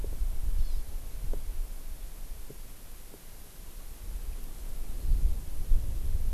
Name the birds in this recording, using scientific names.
Chlorodrepanis virens